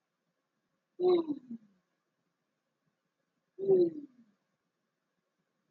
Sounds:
Sigh